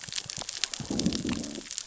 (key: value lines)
label: biophony, growl
recorder: SoundTrap 600 or HydroMoth